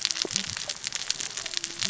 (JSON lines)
{"label": "biophony, cascading saw", "recorder": "SoundTrap 600 or HydroMoth"}